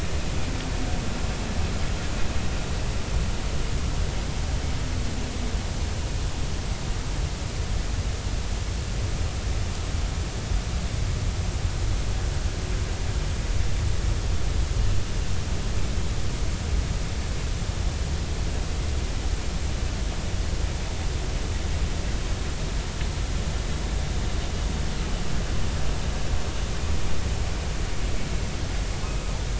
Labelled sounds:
29.0	29.3	humpback whale, 2.5 to 2.6 kHz

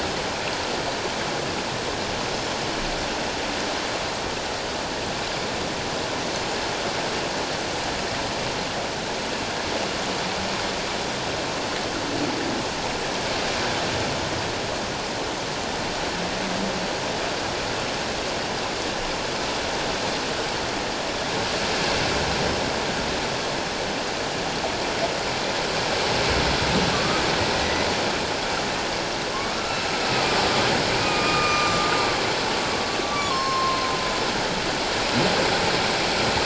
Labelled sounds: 26.9	27.9	humpback whale, 1.1 to 2.1 kHz
29.8	30.5	humpback whale, 1.2 to 6.7 kHz
31.0	31.9	humpback whale, 1.1 to 6.1 kHz
33.0	34.0	humpback whale, 1.0 to 5.4 kHz

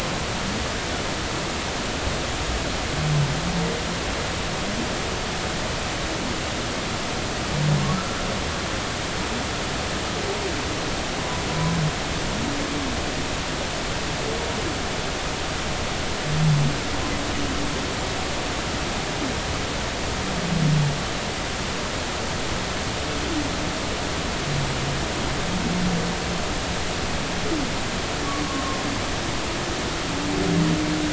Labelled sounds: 7.9	8.2	humpback whale, 1.3 to 1.4 kHz
11.5	11.7	humpback whale, 0.96 to 1.1 kHz
28.5	28.8	humpback whale, 1.0 to 1.2 kHz

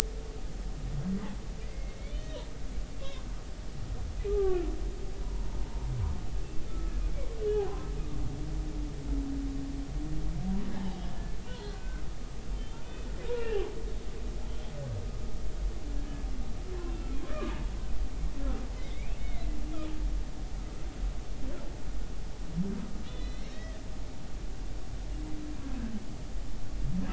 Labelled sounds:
1.6	2.4	humpback whale, 1.9 to 3.9 kHz
4.3	4.7	humpback whale, 1.1 to 1.6 kHz
5.2	5.9	humpback whale, 0.83 to 1.1 kHz
6.7	6.9	humpback whale, 1.2 to 1.4 kHz
11.6	13.7	humpback whale, 1.3 to 3.2 kHz
16.8	17.7	humpback whale, 0.86 to 2.8 kHz
18.7	19.5	humpback whale, 2.0 to 2.8 kHz
23.0	23.8	humpback whale, 1.8 to 5.7 kHz

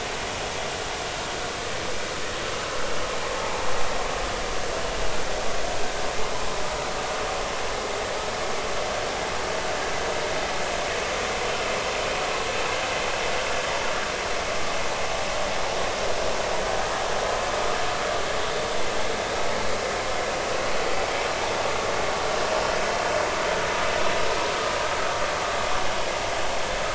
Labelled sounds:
3.4	3.7	vessel noise, 0.80 to 0.99 kHz

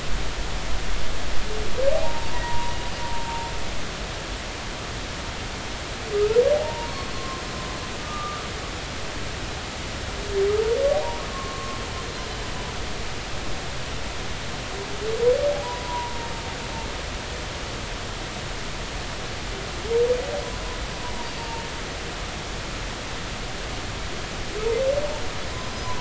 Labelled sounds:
1.9	2.7	humpback whale, 0.80 to 1.0 kHz
6.1	7.4	humpback whale, 0.80 to 1.4 kHz
8.0	8.4	humpback whale, 1.2 to 1.3 kHz
10.9	11.8	humpback whale, 0.80 to 1.2 kHz
15.6	16.3	humpback whale, 0.80 to 1.0 kHz
21.2	21.6	humpback whale, 0.86 to 4.8 kHz

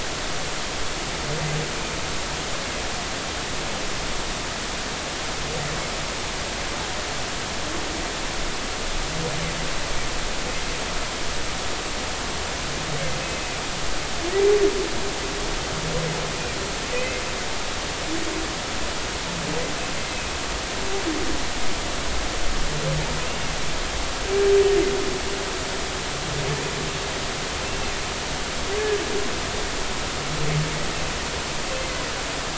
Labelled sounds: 16.9	17.2	humpback whale, 1.9 to 2.7 kHz

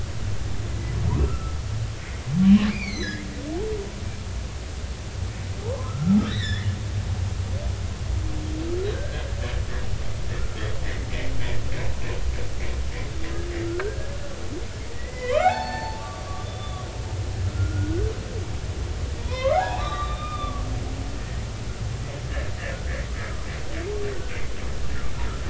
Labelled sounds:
1.2	1.6	humpback whale, 1.2 to 1.5 kHz
2.7	3.2	humpback whale, 1.6 to 5.0 kHz
5.6	6.7	humpback whale, 0.80 to 5.6 kHz
8.9	9.2	humpback whale, 1.4 to 1.7 kHz
10.3	10.7	humpback whale, 1.2 to 1.5 kHz
13.7	14.2	humpback whale, 1.3 to 1.7 kHz
14.9	16.9	humpback whale, 0.80 to 4.7 kHz
17.4	18.0	humpback whale, 1.3 to 1.5 kHz
19.2	20.7	humpback whale, 0.80 to 4.0 kHz
21.2	21.4	humpback whale, 1.7 to 2.0 kHz
22.7	23.0	humpback whale, 1.4 to 1.9 kHz

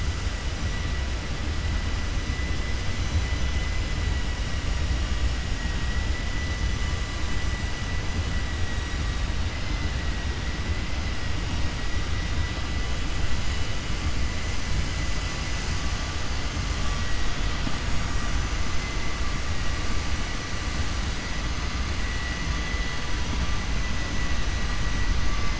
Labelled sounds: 3.3	3.8	vessel noise, 2.0 to 4.0 kHz

